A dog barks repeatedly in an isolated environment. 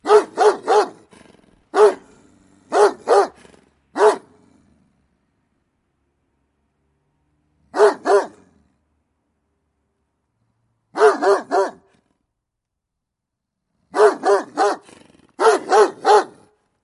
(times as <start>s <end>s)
0.0s 4.4s, 7.6s 8.4s, 10.8s 11.8s, 13.9s 16.4s